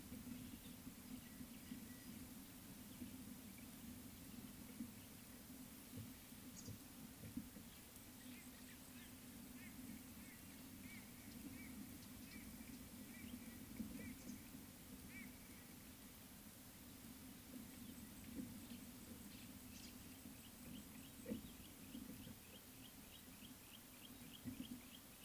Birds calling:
Yellow-breasted Apalis (Apalis flavida)

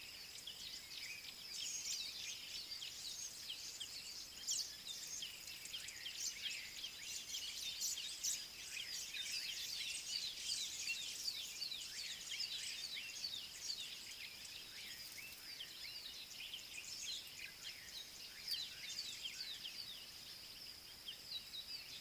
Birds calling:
Collared Sunbird (Hedydipna collaris)

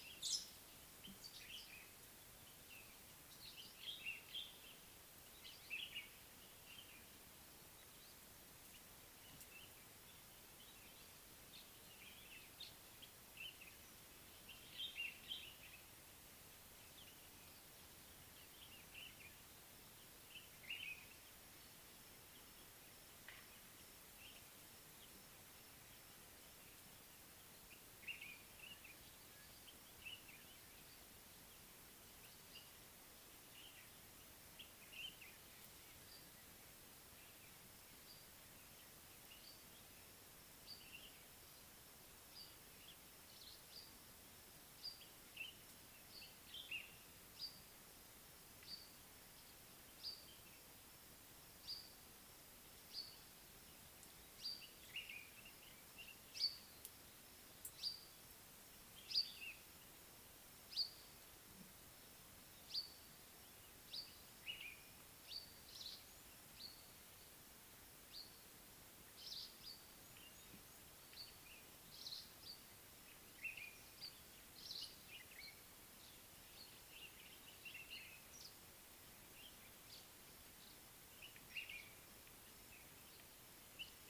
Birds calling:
Brimstone Canary (Crithagra sulphurata), African Pied Wagtail (Motacilla aguimp), Common Bulbul (Pycnonotus barbatus)

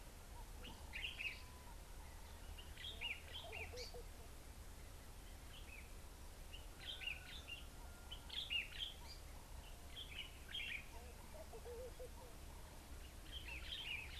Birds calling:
Lawrence's Goldfinch (Spinus lawrencei), Common Bulbul (Pycnonotus barbatus), Laughing Dove (Streptopelia senegalensis)

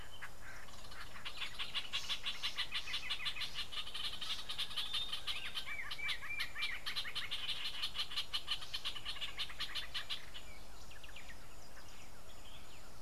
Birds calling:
Northern Brownbul (Phyllastrephus strepitans)

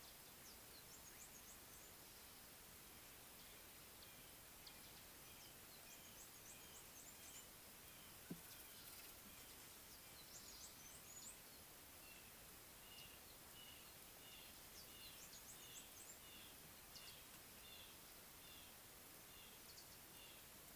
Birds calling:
Red-fronted Barbet (Tricholaema diademata)

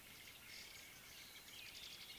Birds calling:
White-browed Sparrow-Weaver (Plocepasser mahali)

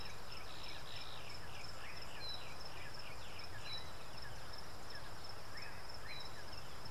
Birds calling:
Yellow-breasted Apalis (Apalis flavida)

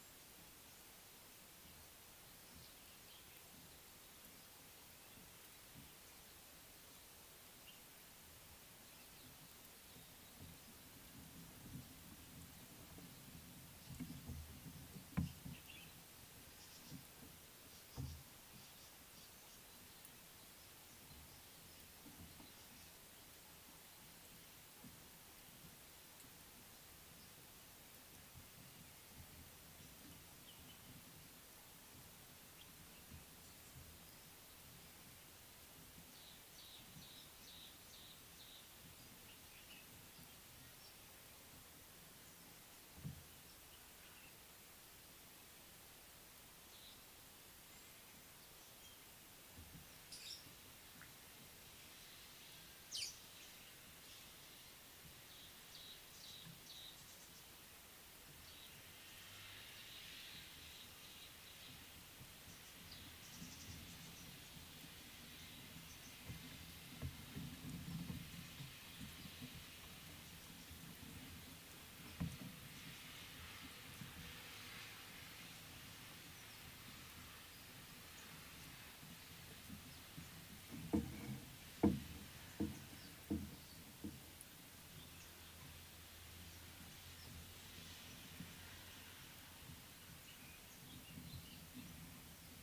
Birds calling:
Variable Sunbird (Cinnyris venustus), Fischer's Lovebird (Agapornis fischeri), Tawny-flanked Prinia (Prinia subflava)

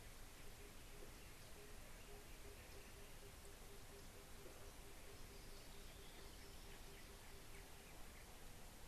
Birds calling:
Tambourine Dove (Turtur tympanistria)

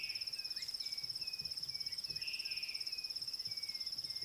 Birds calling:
African Gray Hornbill (Lophoceros nasutus)

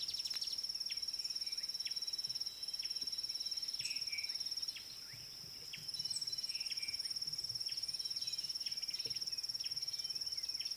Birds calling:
Gray Wren-Warbler (Calamonastes simplex)

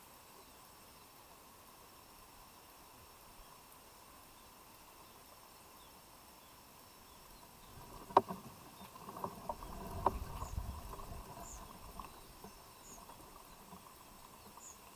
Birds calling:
White-eyed Slaty-Flycatcher (Melaenornis fischeri)

